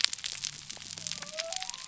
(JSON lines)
{"label": "biophony", "recorder": "SoundTrap 300"}